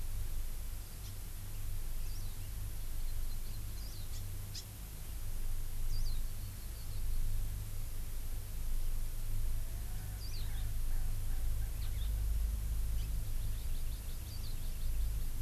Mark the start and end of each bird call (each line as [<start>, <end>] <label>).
[1.00, 1.10] Hawaii Amakihi (Chlorodrepanis virens)
[2.10, 2.50] Warbling White-eye (Zosterops japonicus)
[3.00, 3.60] Hawaii Amakihi (Chlorodrepanis virens)
[3.70, 4.10] Warbling White-eye (Zosterops japonicus)
[5.90, 6.20] Warbling White-eye (Zosterops japonicus)
[9.50, 11.70] Erckel's Francolin (Pternistis erckelii)
[10.20, 10.50] Warbling White-eye (Zosterops japonicus)
[13.20, 15.10] Hawaii Amakihi (Chlorodrepanis virens)
[14.30, 14.50] Warbling White-eye (Zosterops japonicus)